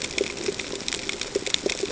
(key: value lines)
label: ambient
recorder: HydroMoth